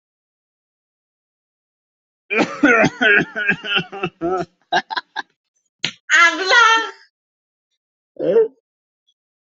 {"expert_labels": [{"quality": "good", "cough_type": "dry", "dyspnea": false, "wheezing": false, "stridor": false, "choking": false, "congestion": false, "nothing": true, "diagnosis": "healthy cough", "severity": "pseudocough/healthy cough"}], "age": 25, "gender": "male", "respiratory_condition": false, "fever_muscle_pain": false, "status": "healthy"}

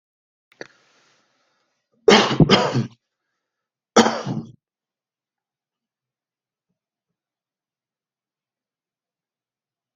{"expert_labels": [{"quality": "good", "cough_type": "dry", "dyspnea": false, "wheezing": false, "stridor": false, "choking": false, "congestion": false, "nothing": true, "diagnosis": "healthy cough", "severity": "pseudocough/healthy cough"}], "age": 55, "gender": "male", "respiratory_condition": false, "fever_muscle_pain": false, "status": "symptomatic"}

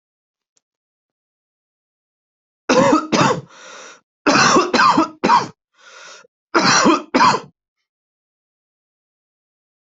{"expert_labels": [{"quality": "good", "cough_type": "dry", "dyspnea": false, "wheezing": true, "stridor": false, "choking": false, "congestion": false, "nothing": false, "diagnosis": "obstructive lung disease", "severity": "mild"}]}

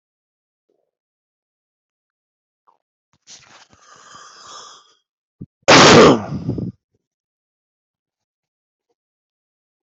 {"expert_labels": [{"quality": "poor", "cough_type": "unknown", "dyspnea": false, "wheezing": false, "stridor": false, "choking": false, "congestion": false, "nothing": true, "diagnosis": "healthy cough", "severity": "mild"}, {"quality": "good", "cough_type": "unknown", "dyspnea": false, "wheezing": false, "stridor": false, "choking": false, "congestion": false, "nothing": true, "diagnosis": "obstructive lung disease", "severity": "unknown"}, {"quality": "good", "cough_type": "unknown", "dyspnea": false, "wheezing": false, "stridor": false, "choking": false, "congestion": false, "nothing": true, "diagnosis": "healthy cough", "severity": "pseudocough/healthy cough"}, {"quality": "ok", "cough_type": "dry", "dyspnea": false, "wheezing": false, "stridor": false, "choking": false, "congestion": false, "nothing": true, "diagnosis": "healthy cough", "severity": "pseudocough/healthy cough"}], "age": 56, "gender": "female", "respiratory_condition": true, "fever_muscle_pain": false, "status": "COVID-19"}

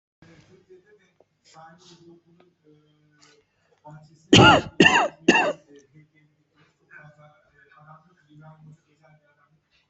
{"expert_labels": [{"quality": "ok", "cough_type": "dry", "dyspnea": false, "wheezing": true, "stridor": false, "choking": false, "congestion": false, "nothing": false, "diagnosis": "COVID-19", "severity": "mild"}], "age": 53, "gender": "male", "respiratory_condition": false, "fever_muscle_pain": false, "status": "COVID-19"}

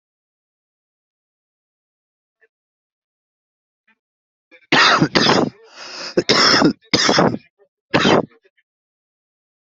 {"expert_labels": [{"quality": "ok", "cough_type": "unknown", "dyspnea": false, "wheezing": false, "stridor": false, "choking": false, "congestion": false, "nothing": true, "diagnosis": "lower respiratory tract infection", "severity": "mild"}], "age": 40, "gender": "male", "respiratory_condition": false, "fever_muscle_pain": false, "status": "COVID-19"}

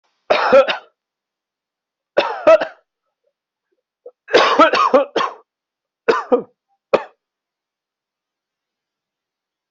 {"expert_labels": [{"quality": "ok", "cough_type": "dry", "dyspnea": false, "wheezing": false, "stridor": false, "choking": false, "congestion": false, "nothing": true, "diagnosis": "COVID-19", "severity": "mild"}], "age": 22, "gender": "female", "respiratory_condition": true, "fever_muscle_pain": false, "status": "healthy"}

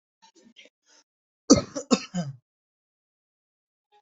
{"expert_labels": [{"quality": "ok", "cough_type": "unknown", "dyspnea": false, "wheezing": false, "stridor": false, "choking": false, "congestion": false, "nothing": true, "diagnosis": "healthy cough", "severity": "pseudocough/healthy cough"}]}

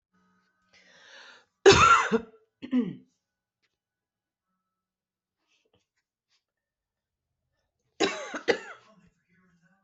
{"expert_labels": [{"quality": "good", "cough_type": "dry", "dyspnea": false, "wheezing": false, "stridor": false, "choking": false, "congestion": false, "nothing": true, "diagnosis": "upper respiratory tract infection", "severity": "mild"}]}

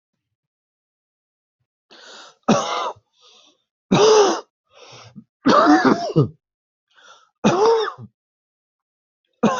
{"expert_labels": [{"quality": "good", "cough_type": "wet", "dyspnea": false, "wheezing": false, "stridor": false, "choking": false, "congestion": false, "nothing": true, "diagnosis": "obstructive lung disease", "severity": "mild"}]}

